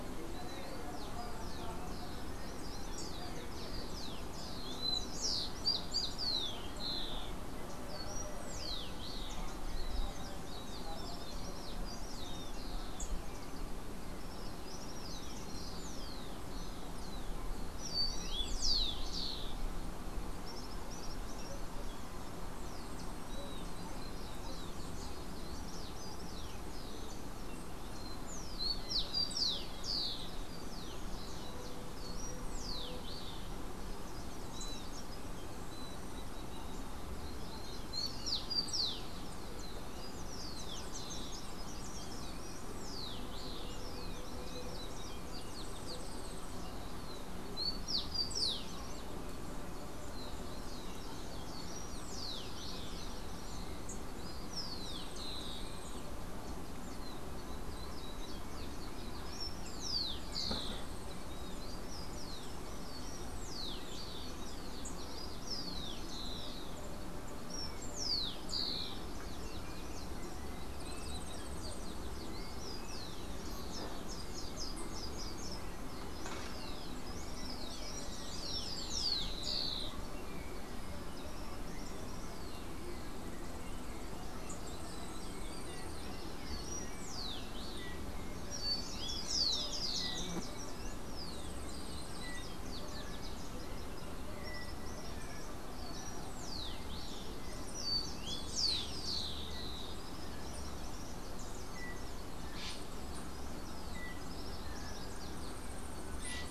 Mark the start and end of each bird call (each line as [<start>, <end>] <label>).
[0.00, 19.76] Rufous-collared Sparrow (Zonotrichia capensis)
[20.26, 21.76] Common Tody-Flycatcher (Todirostrum cinereum)
[22.46, 33.76] Rufous-collared Sparrow (Zonotrichia capensis)
[22.66, 24.06] Yellow-faced Grassquit (Tiaris olivaceus)
[34.06, 37.26] unidentified bird
[37.26, 48.96] Rufous-collared Sparrow (Zonotrichia capensis)
[45.36, 46.66] Yellow-faced Grassquit (Tiaris olivaceus)
[51.26, 69.26] Rufous-collared Sparrow (Zonotrichia capensis)
[54.76, 56.16] Yellow-faced Grassquit (Tiaris olivaceus)
[60.36, 61.46] Yellow-faced Grassquit (Tiaris olivaceus)
[70.76, 72.36] Yellow-faced Grassquit (Tiaris olivaceus)
[73.56, 75.76] Slate-throated Redstart (Myioborus miniatus)
[78.06, 80.16] Rufous-collared Sparrow (Zonotrichia capensis)
[84.66, 86.16] Yellow-faced Grassquit (Tiaris olivaceus)
[85.96, 90.76] Rufous-collared Sparrow (Zonotrichia capensis)
[91.26, 92.56] Yellow-faced Grassquit (Tiaris olivaceus)
[95.76, 100.06] Rufous-collared Sparrow (Zonotrichia capensis)
[98.16, 99.36] Yellow-faced Grassquit (Tiaris olivaceus)
[99.96, 105.56] Common Tody-Flycatcher (Todirostrum cinereum)
[105.26, 106.36] Yellow-faced Grassquit (Tiaris olivaceus)